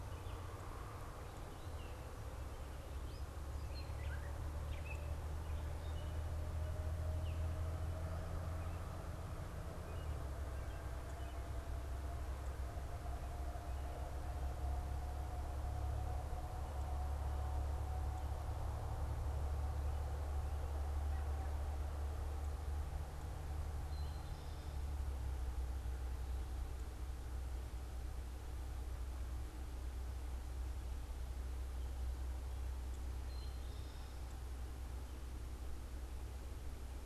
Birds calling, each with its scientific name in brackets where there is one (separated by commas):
Gray Catbird (Dumetella carolinensis), Eastern Towhee (Pipilo erythrophthalmus)